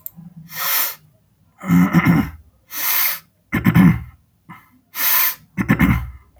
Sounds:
Sniff